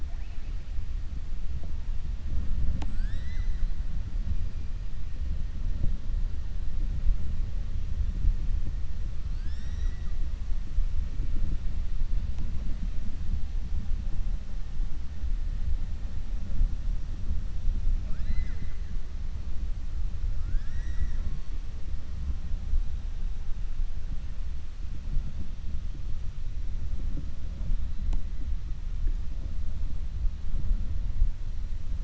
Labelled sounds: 0.0	0.6	killer whale, 0.79 to 2.9 kHz
18.0	18.8	killer whale, 0.49 to 5.2 kHz

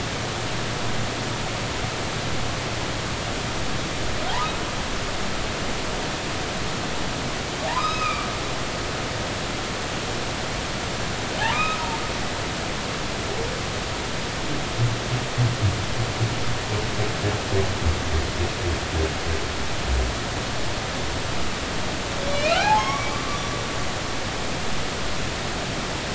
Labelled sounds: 7.7	8.3	humpback whale, 1.1 to 5.2 kHz
11.5	11.9	humpback whale, 1.2 to 5.3 kHz
22.3	23.2	humpback whale, 0.80 to 5.8 kHz

